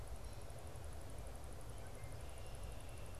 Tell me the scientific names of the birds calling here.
Agelaius phoeniceus